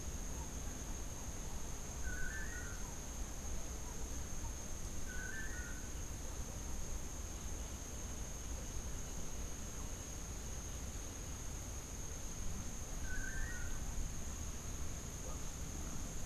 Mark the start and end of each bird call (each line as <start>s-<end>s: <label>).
2.0s-2.8s: Long-tailed Manakin (Chiroxiphia linearis)
3.8s-4.5s: unidentified bird
5.1s-5.9s: Long-tailed Manakin (Chiroxiphia linearis)
13.0s-13.8s: Long-tailed Manakin (Chiroxiphia linearis)